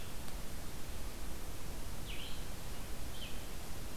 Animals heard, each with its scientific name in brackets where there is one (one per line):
Red-eyed Vireo (Vireo olivaceus)